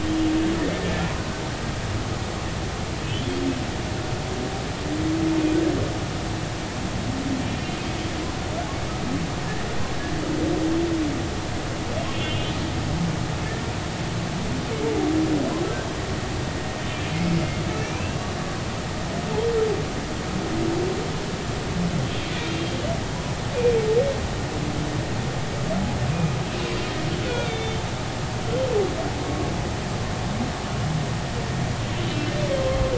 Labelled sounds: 7.4	7.7	humpback whale, 2.3 to 2.5 kHz
12.1	12.5	humpback whale, 2.7 to 2.9 kHz
17.8	18.2	humpback whale, 2.1 to 2.8 kHz
22.0	22.3	humpback whale, 3.1 to 3.4 kHz
27.2	27.8	humpback whale, 1.4 to 3.7 kHz
29.2	29.5	humpback whale, 1.1 to 1.2 kHz

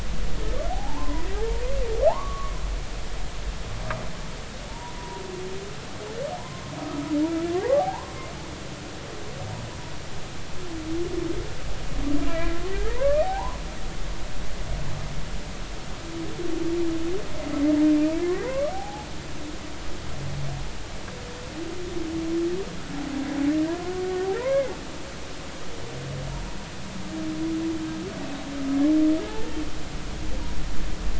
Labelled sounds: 0.7	1.3	humpback whale, 0.80 to 1.1 kHz
2.1	2.5	humpback whale, 0.80 to 1.2 kHz
4.7	5.2	humpback whale, 0.86 to 1.0 kHz
6.4	6.6	humpback whale, 0.90 to 1.1 kHz
7.6	8.1	humpback whale, 0.80 to 1.2 kHz
12.3	13.6	humpback whale, 0.80 to 2.1 kHz
18.2	19.1	humpback whale, 0.80 to 2.3 kHz
24.4	24.7	humpback whale, 0.90 to 2.3 kHz

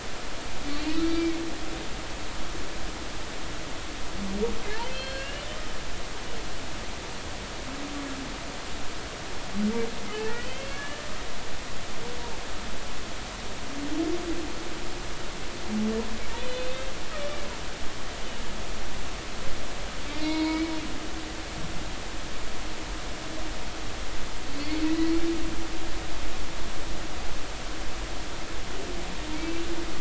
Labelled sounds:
1.0	1.4	humpback whale, 2.1 to 4.7 kHz
4.9	5.4	humpback whale, 1.4 to 4.4 kHz
10.5	11.1	humpback whale, 1.6 to 3.0 kHz
16.4	16.9	humpback whale, 2.5 to 4.1 kHz
17.2	17.4	humpback whale, 2.8 to 3.0 kHz
20.1	20.7	humpback whale, 0.90 to 4.9 kHz
24.6	25.2	humpback whale, 1.9 to 4.5 kHz
29.4	29.7	humpback whale, 2.6 to 2.8 kHz

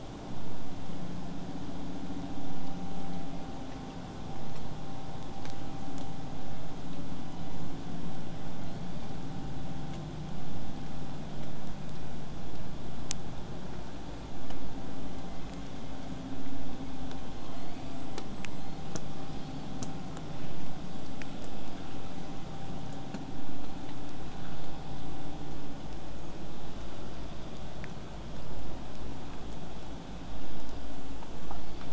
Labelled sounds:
0.3	5.3	vessel noise, 0 to 8.0 kHz
7.2	8.1	killer whale, southern resident, call S01, 1.0 to 7.6 kHz
15.1	16.0	killer whale, southern resident, 1.2 to 7.1 kHz
17.3	18.1	killer whale, southern resident, 1.8 to 8.0 kHz
18.5	18.8	killer whale, southern resident, 3.6 to 6.4 kHz

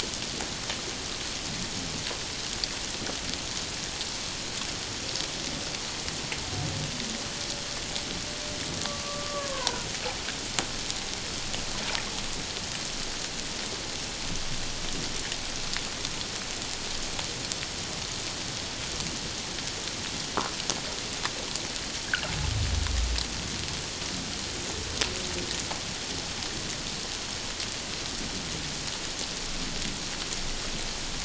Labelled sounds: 8.8	9.9	humpback whale, 0.88 to 1.6 kHz

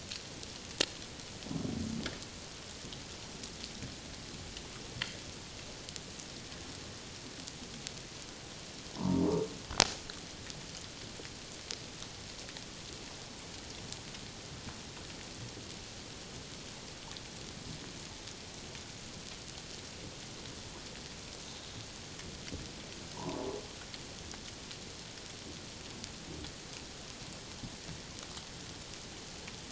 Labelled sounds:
9.0	9.2	humpback whale, 0.88 to 1.2 kHz
23.1	23.4	humpback whale, 0.81 to 1.2 kHz

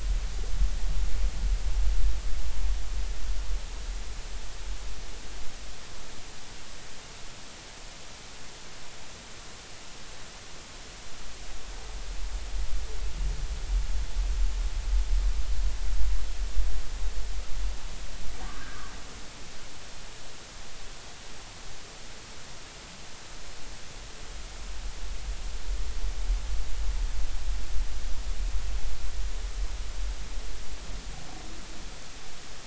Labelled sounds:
18.7	18.9	humpback whale, 1.1 to 1.3 kHz

